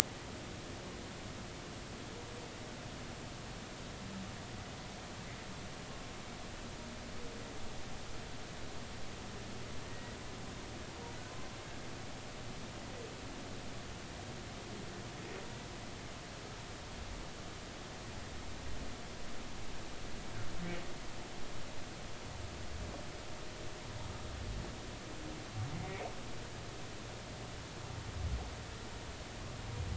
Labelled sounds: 9.9	10.2	humpback whale, 1.9 to 2.0 kHz

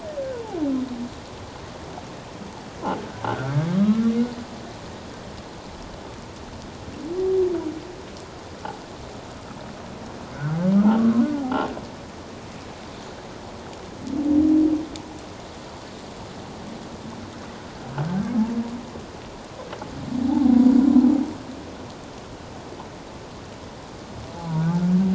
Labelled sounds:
3.2	4.1	humpback whale, 1.1 to 1.7 kHz
20.3	20.6	humpback whale, 0.78 to 0.94 kHz
24.6	24.8	humpback whale, 1.4 to 1.7 kHz

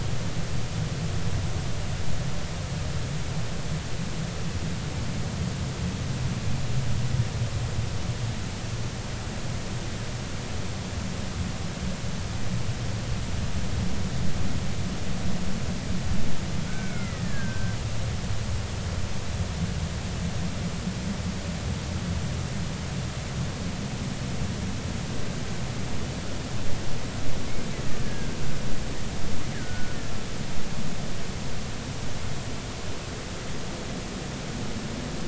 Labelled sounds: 16.7	17.8	killer whale, Bigg's (transient), 1.2 to 2.3 kHz
28.0	28.4	killer whale, Bigg's (transient), 1.5 to 1.7 kHz
29.5	30.0	killer whale, Bigg's (transient), 1.4 to 2.0 kHz

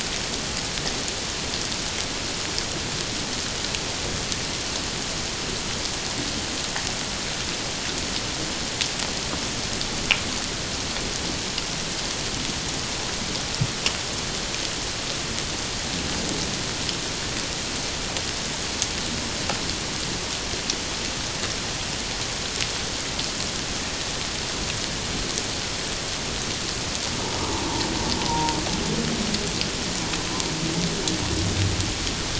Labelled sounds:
28.3	28.6	humpback whale, 0.88 to 1.0 kHz

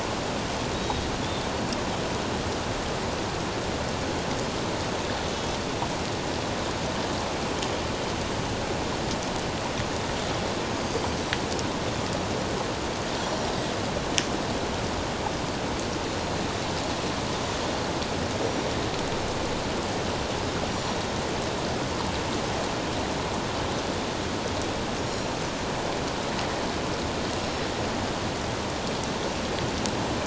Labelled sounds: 0.7	1.0	Pacific white-sided dolphin, 3.7 to 3.9 kHz
5.3	5.6	Pacific white-sided dolphin, 3.3 to 3.5 kHz
10.8	11.2	Pacific white-sided dolphin, 4.6 to 4.9 kHz
13.2	13.6	Pacific white-sided dolphin, 5.5 to 7.3 kHz
20.7	21.0	Pacific white-sided dolphin, 5.5 to 5.7 kHz
25.0	25.4	Pacific white-sided dolphin, 5.5 to 7.1 kHz
27.4	27.6	Pacific white-sided dolphin, 5.3 to 5.6 kHz

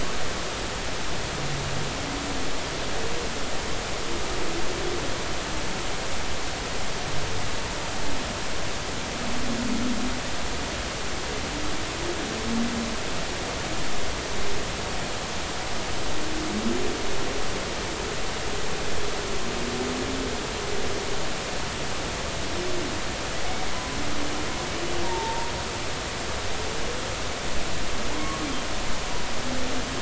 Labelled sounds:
25.0	25.5	humpback whale, 0.83 to 0.99 kHz

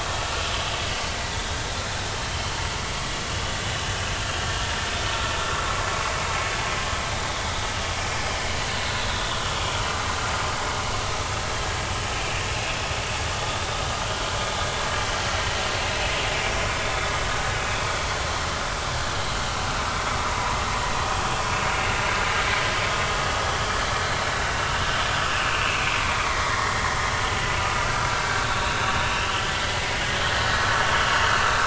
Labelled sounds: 7.3	7.6	vessel noise, 3.4 to 3.5 kHz
9.1	9.8	vessel noise, 3.2 to 3.8 kHz
17.6	17.8	vessel noise, 2.4 to 2.6 kHz
20.3	20.6	vessel noise, 0.93 to 1.1 kHz
26.2	27.0	vessel noise, 1.8 to 2.9 kHz
29.2	30.0	vessel noise, 1.9 to 3.3 kHz

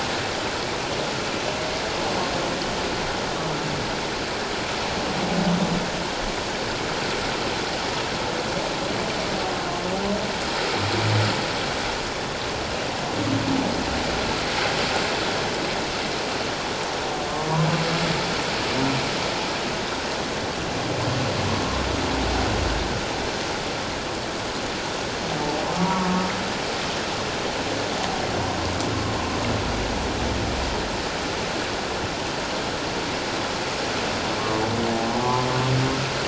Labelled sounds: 25.6	26.1	humpback whale, 0.84 to 1.2 kHz
35.2	35.5	humpback whale, 0.78 to 1.2 kHz

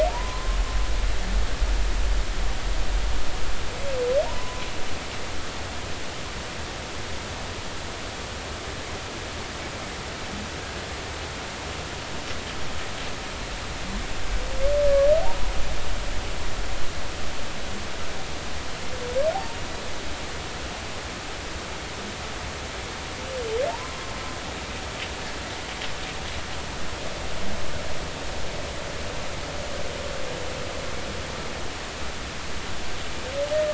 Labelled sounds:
4.2	4.7	humpback whale, 0.86 to 1.1 kHz
14.9	15.5	humpback whale, 0.80 to 1.8 kHz

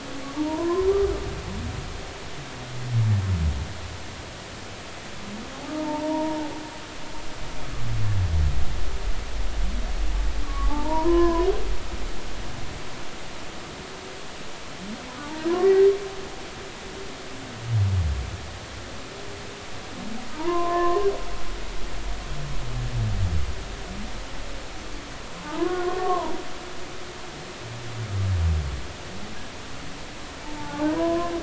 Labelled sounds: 0.4	0.9	humpback whale, 0.86 to 1.1 kHz
5.8	6.5	humpback whale, 0.83 to 1.0 kHz
10.4	11.5	humpback whale, 0.80 to 1.8 kHz
15.6	15.9	humpback whale, 1.9 to 2.0 kHz
20.4	21.0	humpback whale, 0.86 to 1.9 kHz
25.4	26.3	humpback whale, 0.83 to 1.2 kHz
30.4	31.3	humpback whale, 0.80 to 1.1 kHz

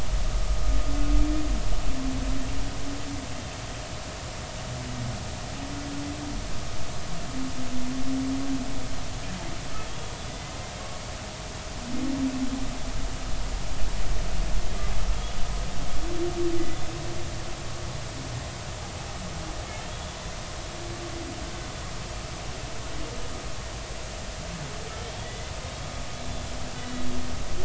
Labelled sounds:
9.9	10.1	humpback whale, 3.1 to 3.4 kHz
19.9	20.2	humpback whale, 3.3 to 3.5 kHz
25.2	25.5	humpback whale, 1.9 to 3.5 kHz
26.8	27.1	humpback whale, 1.9 to 2.0 kHz

